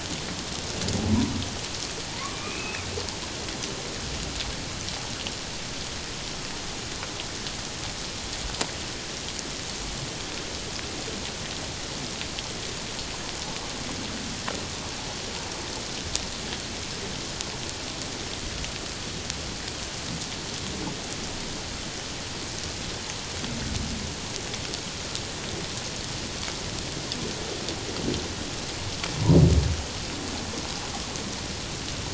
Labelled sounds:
2.3	2.9	humpback whale, 2.2 to 2.7 kHz

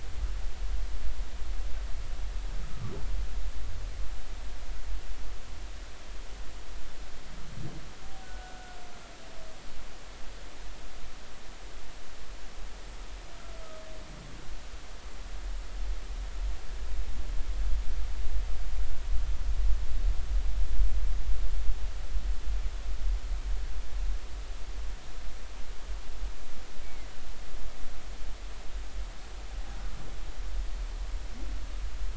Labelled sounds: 8.2	8.8	humpback whale, 1.4 to 1.5 kHz

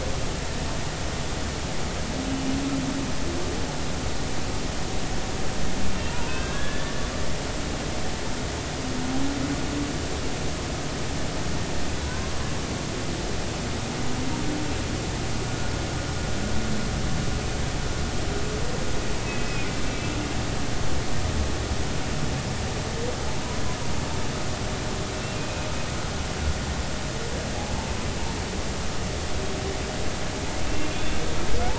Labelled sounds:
6.1	6.9	humpback whale, 0.90 to 3.6 kHz
12.1	12.3	humpback whale, 0.96 to 1.1 kHz
19.3	19.8	humpback whale, 2.3 to 2.6 kHz
25.3	25.7	humpback whale, 2.4 to 2.6 kHz
30.8	31.2	humpback whale, 2.4 to 3.6 kHz

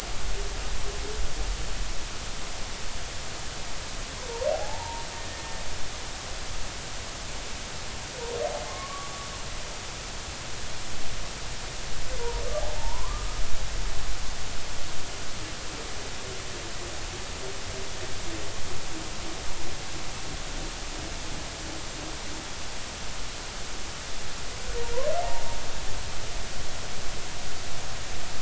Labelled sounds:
4.5	5.6	humpback whale, 0.80 to 1.9 kHz
8.7	9.1	humpback whale, 1.0 to 1.2 kHz
12.7	13.3	humpback whale, 0.80 to 1.2 kHz

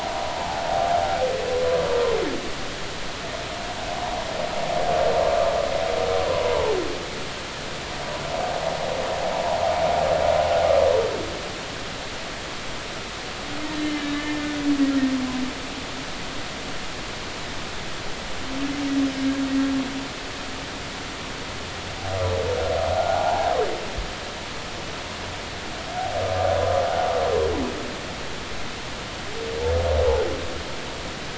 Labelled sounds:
0.4	0.6	humpback whale, 0.80 to 1.0 kHz
6.3	6.7	humpback whale, 0.80 to 1.2 kHz
13.6	14.4	humpback whale, 1.6 to 3.0 kHz
23.0	23.5	humpback whale, 0.80 to 1.5 kHz

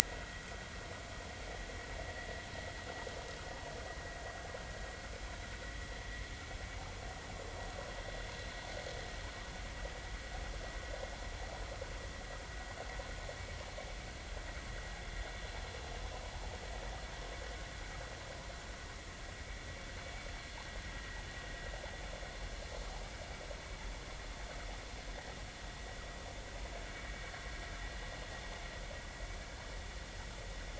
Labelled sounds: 0.3	0.6	vessel noise, 1.8 to 2.1 kHz
1.0	1.3	vessel noise, 1.9 to 2.1 kHz

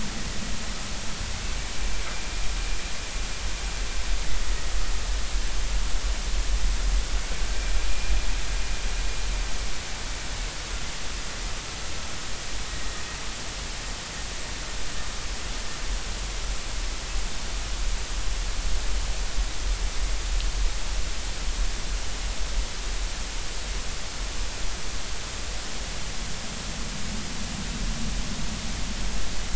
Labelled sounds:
7.9	8.1	vessel noise, 2.4 to 2.5 kHz

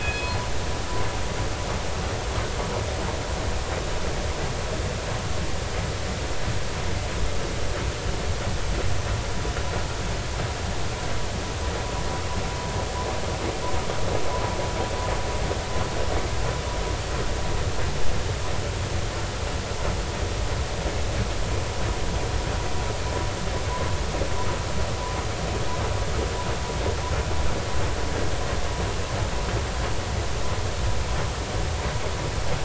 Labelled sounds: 0.0	0.4	killer whale, northern resident, G clan, call N24ii, 2.4 to 4.3 kHz

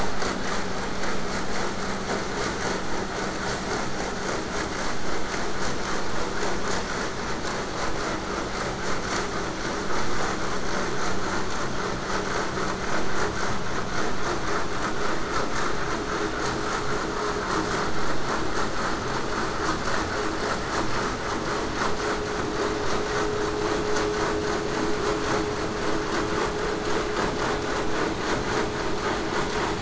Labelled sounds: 28.8	29.7	vessel noise, 0.19 to 8.0 kHz

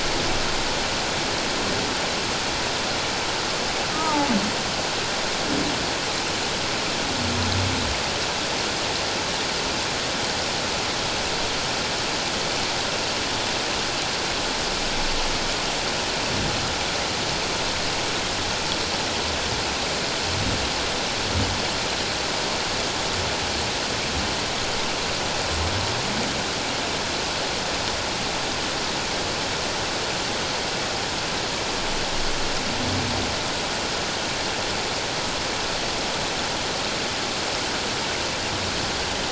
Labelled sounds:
3.9	4.3	humpback whale, 0.78 to 1.3 kHz

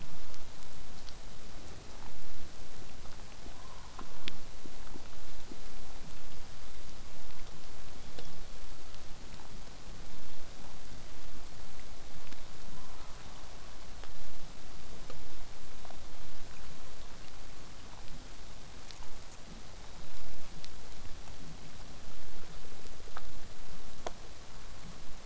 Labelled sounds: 7.8	8.6	killer whale, southern resident, call S16, 3.2 to 4.7 kHz
15.0	20.0	vessel noise, 0 to 8.0 kHz

